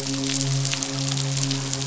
{"label": "biophony, midshipman", "recorder": "SoundTrap 500"}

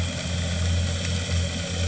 {"label": "anthrophony, boat engine", "recorder": "HydroMoth"}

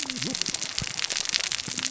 {"label": "biophony, cascading saw", "recorder": "SoundTrap 600 or HydroMoth"}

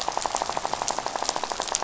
{"label": "biophony, rattle", "recorder": "SoundTrap 500"}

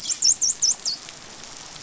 {"label": "biophony, dolphin", "recorder": "SoundTrap 500"}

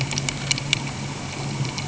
{"label": "anthrophony, boat engine", "recorder": "HydroMoth"}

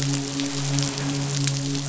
{"label": "biophony, midshipman", "recorder": "SoundTrap 500"}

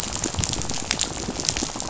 {"label": "biophony, rattle", "recorder": "SoundTrap 500"}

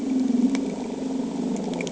{"label": "anthrophony, boat engine", "recorder": "HydroMoth"}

